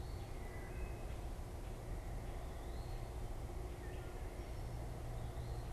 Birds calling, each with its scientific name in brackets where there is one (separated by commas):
Wood Thrush (Hylocichla mustelina)